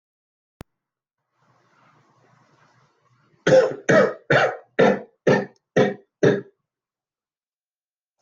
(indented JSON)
{
  "expert_labels": [
    {
      "quality": "good",
      "cough_type": "dry",
      "dyspnea": false,
      "wheezing": false,
      "stridor": false,
      "choking": false,
      "congestion": false,
      "nothing": true,
      "diagnosis": "lower respiratory tract infection",
      "severity": "mild"
    }
  ],
  "age": 49,
  "gender": "male",
  "respiratory_condition": false,
  "fever_muscle_pain": false,
  "status": "COVID-19"
}